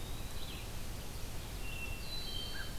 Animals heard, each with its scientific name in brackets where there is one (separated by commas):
Red-eyed Vireo (Vireo olivaceus), Eastern Wood-Pewee (Contopus virens), Hermit Thrush (Catharus guttatus)